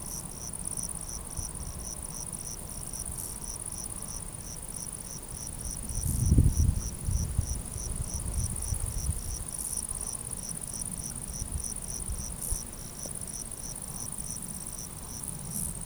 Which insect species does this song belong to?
Eumodicogryllus bordigalensis